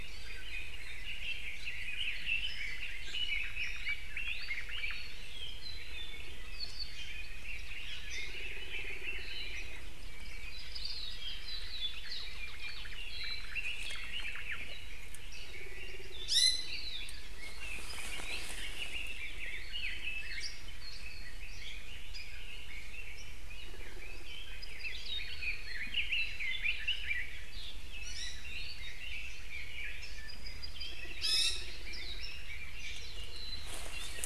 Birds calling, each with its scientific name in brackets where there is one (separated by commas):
Iiwi (Drepanis coccinea), Apapane (Himatione sanguinea), Omao (Myadestes obscurus), Hawaii Akepa (Loxops coccineus), Red-billed Leiothrix (Leiothrix lutea), Hawaii Creeper (Loxops mana), Warbling White-eye (Zosterops japonicus)